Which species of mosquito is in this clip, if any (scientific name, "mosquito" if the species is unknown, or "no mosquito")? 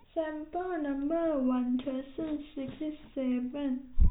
no mosquito